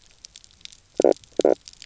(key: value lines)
label: biophony, knock croak
recorder: SoundTrap 300